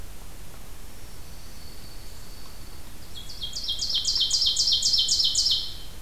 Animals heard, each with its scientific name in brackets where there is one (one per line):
Dark-eyed Junco (Junco hyemalis)
Ovenbird (Seiurus aurocapilla)